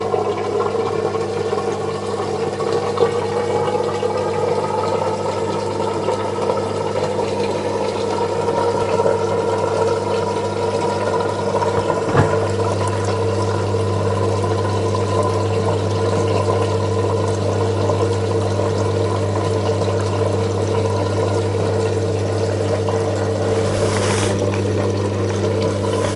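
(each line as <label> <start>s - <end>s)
Loud mechanical draining sound as water forcefully rushes out during a washing machine's spin cycle. 0.0s - 26.2s
A soft human sniffle. 23.5s - 26.2s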